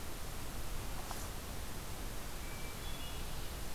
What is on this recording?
Hermit Thrush